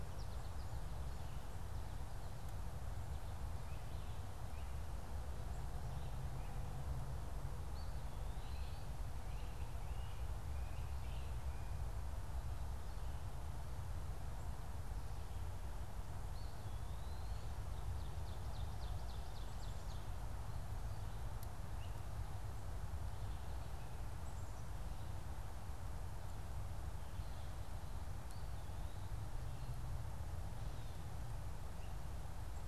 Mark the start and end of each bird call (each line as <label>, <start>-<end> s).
American Goldfinch (Spinus tristis), 0.0-1.2 s
Eastern Wood-Pewee (Contopus virens), 7.6-9.0 s
Great Crested Flycatcher (Myiarchus crinitus), 8.6-11.8 s
Eastern Wood-Pewee (Contopus virens), 16.2-17.7 s
Ovenbird (Seiurus aurocapilla), 17.7-20.2 s
Great Crested Flycatcher (Myiarchus crinitus), 21.7-22.0 s
Black-capped Chickadee (Poecile atricapillus), 23.8-25.1 s
Eastern Wood-Pewee (Contopus virens), 28.0-29.3 s